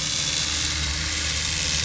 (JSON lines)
{"label": "anthrophony, boat engine", "recorder": "SoundTrap 500"}